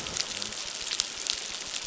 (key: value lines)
label: biophony
recorder: SoundTrap 600